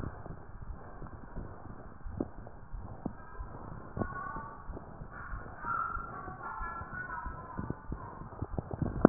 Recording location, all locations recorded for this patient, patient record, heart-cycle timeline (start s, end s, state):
mitral valve (MV)
mitral valve (MV)
#Age: Adolescent
#Sex: Female
#Height: 150.0 cm
#Weight: 54.7 kg
#Pregnancy status: False
#Murmur: Present
#Murmur locations: mitral valve (MV)
#Most audible location: mitral valve (MV)
#Systolic murmur timing: Holosystolic
#Systolic murmur shape: Plateau
#Systolic murmur grading: I/VI
#Systolic murmur pitch: Low
#Systolic murmur quality: Harsh
#Diastolic murmur timing: Early-diastolic
#Diastolic murmur shape: Decrescendo
#Diastolic murmur grading: I/IV
#Diastolic murmur pitch: Low
#Diastolic murmur quality: Blowing
#Outcome: Abnormal
#Campaign: 2015 screening campaign
0.00	0.40	unannotated
0.40	0.66	diastole
0.66	0.80	S1
0.80	1.00	systole
1.00	1.10	S2
1.10	1.36	diastole
1.36	1.48	S1
1.48	1.70	systole
1.70	1.80	S2
1.80	2.02	diastole
2.02	2.18	S1
2.18	2.38	systole
2.38	2.50	S2
2.50	2.74	diastole
2.74	2.88	S1
2.88	3.06	systole
3.06	3.16	S2
3.16	3.38	diastole
3.38	3.52	S1
3.52	3.68	systole
3.68	3.78	S2
3.78	3.98	diastole
3.98	4.16	S1
4.16	4.36	systole
4.36	4.48	S2
4.48	4.68	diastole
4.68	4.82	S1
4.82	5.00	systole
5.00	5.10	S2
5.10	5.30	diastole
5.30	5.46	S1
5.46	5.63	systole
5.63	5.71	S2
5.71	5.94	diastole
5.94	6.06	S1
6.06	6.26	systole
6.26	6.36	S2
6.36	6.60	diastole
6.60	6.74	S1
6.74	6.94	systole
6.94	7.02	S2
7.02	7.24	diastole
7.24	7.36	S1
7.36	7.58	systole
7.58	7.70	S2
7.70	7.88	diastole
7.88	8.00	S1
8.00	8.17	systole
8.17	8.30	S2
8.30	8.52	diastole
8.52	9.09	unannotated